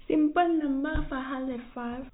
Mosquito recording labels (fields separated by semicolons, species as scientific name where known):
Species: no mosquito; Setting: cup